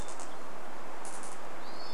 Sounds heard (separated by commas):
Hermit Thrush call, Hermit Thrush song